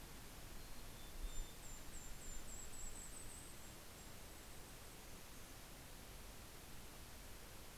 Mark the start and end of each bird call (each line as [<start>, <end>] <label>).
[0.00, 2.30] Mountain Chickadee (Poecile gambeli)
[1.00, 5.40] Golden-crowned Kinglet (Regulus satrapa)